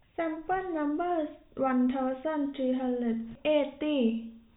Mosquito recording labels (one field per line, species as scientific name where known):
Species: no mosquito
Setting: cup